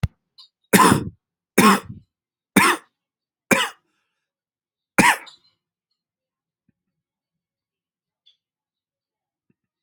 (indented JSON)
{
  "expert_labels": [
    {
      "quality": "good",
      "cough_type": "dry",
      "dyspnea": false,
      "wheezing": false,
      "stridor": false,
      "choking": false,
      "congestion": false,
      "nothing": true,
      "diagnosis": "upper respiratory tract infection",
      "severity": "mild"
    }
  ],
  "age": 35,
  "gender": "male",
  "respiratory_condition": true,
  "fever_muscle_pain": false,
  "status": "symptomatic"
}